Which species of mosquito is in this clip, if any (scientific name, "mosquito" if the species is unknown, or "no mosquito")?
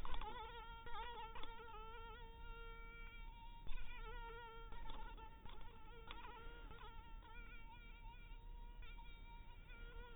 mosquito